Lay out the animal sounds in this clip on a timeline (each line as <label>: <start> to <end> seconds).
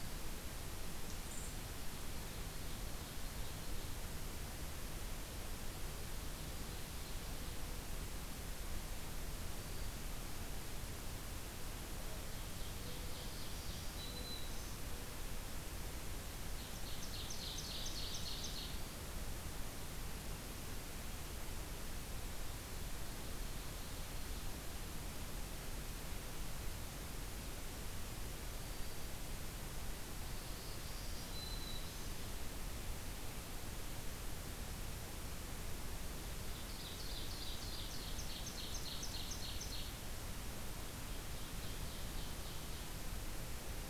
Ovenbird (Seiurus aurocapilla): 2.2 to 3.8 seconds
Mourning Dove (Zenaida macroura): 11.8 to 14.9 seconds
Ovenbird (Seiurus aurocapilla): 12.3 to 13.9 seconds
Black-throated Green Warbler (Setophaga virens): 13.4 to 14.8 seconds
Ovenbird (Seiurus aurocapilla): 16.4 to 18.9 seconds
Black-throated Green Warbler (Setophaga virens): 28.5 to 29.2 seconds
Black-throated Green Warbler (Setophaga virens): 30.3 to 32.2 seconds
Ovenbird (Seiurus aurocapilla): 36.5 to 40.0 seconds
Ovenbird (Seiurus aurocapilla): 41.5 to 42.9 seconds